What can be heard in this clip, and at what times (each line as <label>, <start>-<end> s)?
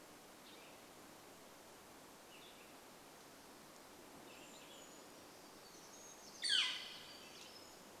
Cassin's Vireo song, 0-6 s
Brown Creeper call, 4-6 s
Northern Flicker call, 6-8 s
unidentified sound, 6-8 s